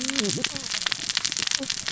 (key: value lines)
label: biophony, cascading saw
recorder: SoundTrap 600 or HydroMoth